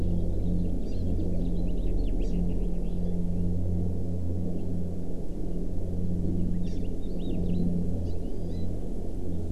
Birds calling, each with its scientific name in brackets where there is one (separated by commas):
Hawaii Elepaio (Chasiempis sandwichensis), Hawaii Amakihi (Chlorodrepanis virens), House Finch (Haemorhous mexicanus)